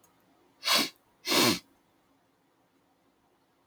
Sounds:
Sniff